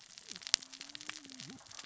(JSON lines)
{"label": "biophony, cascading saw", "recorder": "SoundTrap 600 or HydroMoth"}